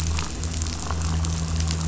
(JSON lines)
{"label": "anthrophony, boat engine", "recorder": "SoundTrap 500"}